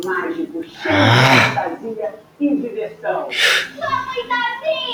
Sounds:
Sigh